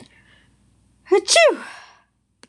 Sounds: Sneeze